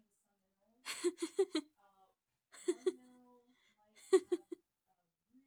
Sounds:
Laughter